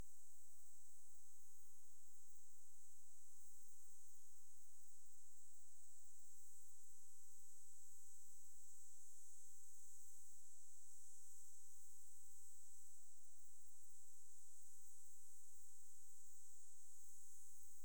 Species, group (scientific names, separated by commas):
Platycleis intermedia, Orthoptera